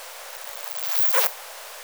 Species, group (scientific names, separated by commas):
Poecilimon artedentatus, Orthoptera